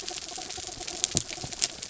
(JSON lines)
{"label": "anthrophony, mechanical", "recorder": "SoundTrap 300"}